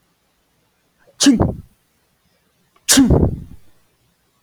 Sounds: Sneeze